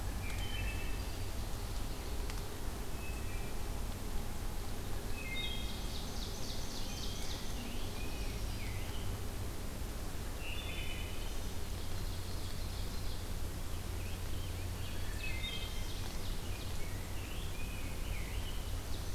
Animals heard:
Rose-breasted Grosbeak (Pheucticus ludovicianus), Red-eyed Vireo (Vireo olivaceus), Black-throated Green Warbler (Setophaga virens), Ovenbird (Seiurus aurocapilla), Wood Thrush (Hylocichla mustelina)

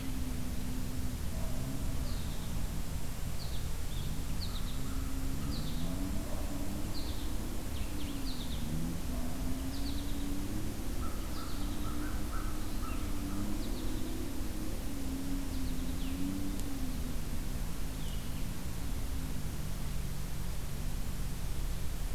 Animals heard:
American Goldfinch (Spinus tristis), Blue-headed Vireo (Vireo solitarius), American Crow (Corvus brachyrhynchos)

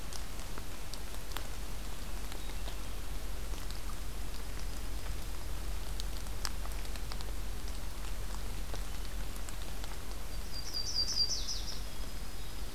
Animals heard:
Yellow-rumped Warbler (Setophaga coronata), Dark-eyed Junco (Junco hyemalis)

